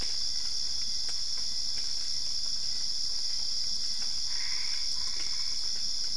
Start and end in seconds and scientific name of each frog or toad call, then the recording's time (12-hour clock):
4.1	5.9	Boana albopunctata
4:15am